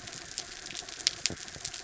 {"label": "anthrophony, mechanical", "recorder": "SoundTrap 300"}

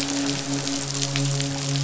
{"label": "biophony, midshipman", "recorder": "SoundTrap 500"}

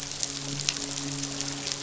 {"label": "biophony, midshipman", "recorder": "SoundTrap 500"}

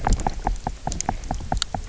{"label": "biophony, knock", "recorder": "SoundTrap 300"}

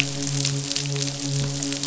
{"label": "biophony, midshipman", "recorder": "SoundTrap 500"}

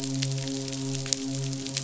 {"label": "biophony, midshipman", "recorder": "SoundTrap 500"}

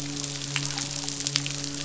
{"label": "biophony, midshipman", "recorder": "SoundTrap 500"}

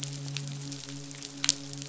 {"label": "biophony, midshipman", "recorder": "SoundTrap 500"}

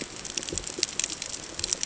{"label": "ambient", "recorder": "HydroMoth"}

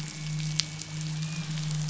{"label": "anthrophony, boat engine", "recorder": "SoundTrap 500"}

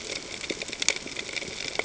{"label": "ambient", "recorder": "HydroMoth"}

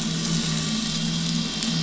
{"label": "anthrophony, boat engine", "recorder": "SoundTrap 500"}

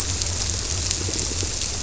{"label": "biophony", "recorder": "SoundTrap 300"}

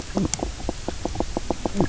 {"label": "biophony, knock croak", "recorder": "SoundTrap 300"}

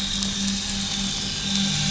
{"label": "anthrophony, boat engine", "recorder": "SoundTrap 500"}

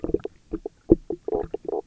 {"label": "biophony, knock croak", "recorder": "SoundTrap 300"}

